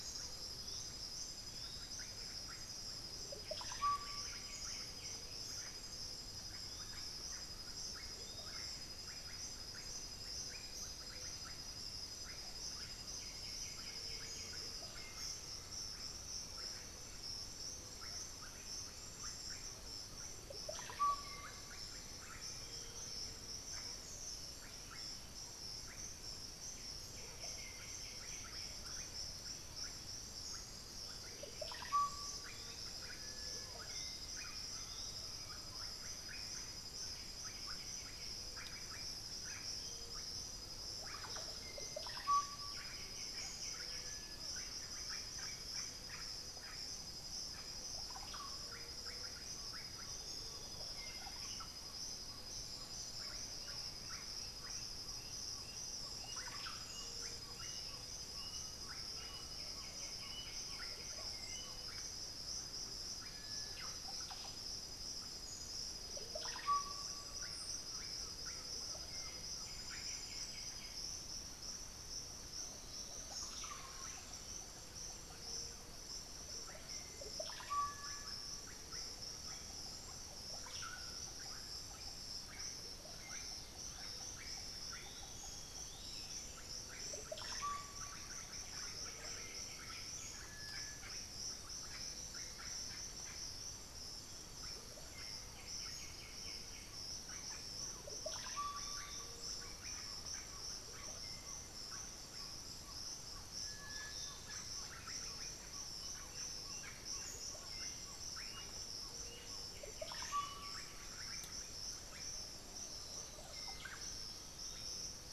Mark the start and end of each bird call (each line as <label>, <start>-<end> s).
Undulated Tinamou (Crypturellus undulatus), 0.0-1.4 s
Yellow-margined Flycatcher (Tolmomyias assimilis), 0.0-8.7 s
Russet-backed Oropendola (Psarocolius angustifrons), 0.0-115.0 s
White-winged Becard (Pachyramphus polychopterus), 3.5-5.4 s
Black-throated Antbird (Myrmophylax atrothorax), 10.4-12.0 s
White-winged Becard (Pachyramphus polychopterus), 12.9-14.8 s
Undulated Tinamou (Crypturellus undulatus), 14.5-16.5 s
Great Antshrike (Taraba major), 16.9-20.4 s
unidentified bird, 22.6-31.7 s
White-winged Becard (Pachyramphus polychopterus), 26.9-28.9 s
Yellow-margined Flycatcher (Tolmomyias assimilis), 32.4-35.7 s
Undulated Tinamou (Crypturellus undulatus), 34.3-36.4 s
White-winged Becard (Pachyramphus polychopterus), 36.8-38.7 s
White-winged Becard (Pachyramphus polychopterus), 42.6-44.5 s
Chestnut-winged Foliage-gleaner (Dendroma erythroptera), 49.4-51.7 s
Bluish-fronted Jacamar (Galbula cyanescens), 53.5-62.0 s
White-winged Becard (Pachyramphus polychopterus), 59.2-61.1 s
White-winged Becard (Pachyramphus polychopterus), 69.4-71.3 s
unidentified bird, 74.0-86.5 s
Gray-crowned Flycatcher (Tolmomyias poliocephalus), 83.7-86.5 s
Chestnut-winged Foliage-gleaner (Dendroma erythroptera), 84.3-86.7 s
White-winged Becard (Pachyramphus polychopterus), 88.8-90.7 s
White-winged Becard (Pachyramphus polychopterus), 95.4-97.3 s
Amazonian Trogon (Trogon ramonianus), 95.6-110.8 s
Black-throated Antbird (Myrmophylax atrothorax), 103.5-104.9 s
Bluish-fronted Jacamar (Galbula cyanescens), 106.0-110.9 s
Plumbeous Pigeon (Patagioenas plumbea), 112.0-113.2 s
Undulated Tinamou (Crypturellus undulatus), 112.7-114.8 s
Black-throated Antbird (Myrmophylax atrothorax), 112.7-115.1 s
unidentified bird, 113.4-115.0 s